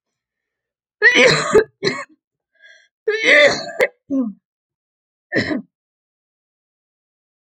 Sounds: Cough